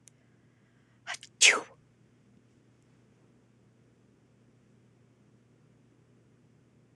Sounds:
Sneeze